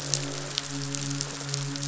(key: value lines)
label: biophony, midshipman
recorder: SoundTrap 500

label: biophony, croak
recorder: SoundTrap 500